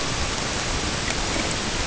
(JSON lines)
{"label": "ambient", "recorder": "HydroMoth"}